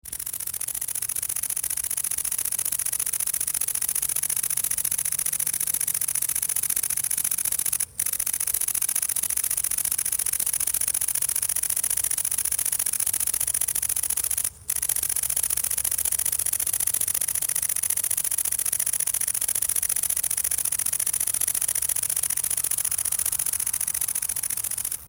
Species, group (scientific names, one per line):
Tettigonia viridissima
Orthoptera